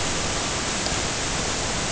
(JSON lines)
{"label": "ambient", "recorder": "HydroMoth"}